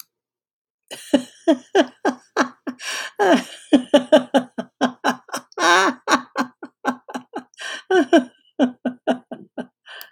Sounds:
Laughter